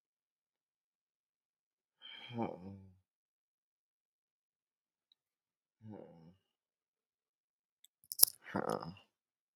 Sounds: Sigh